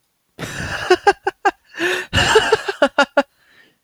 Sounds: Laughter